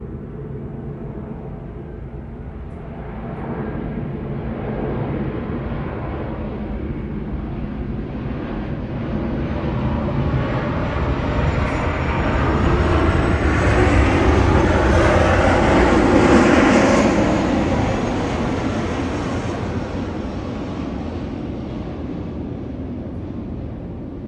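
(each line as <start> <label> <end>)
9.1 An aeroplane passes close by. 18.0
18.1 A jet plane flying away. 24.3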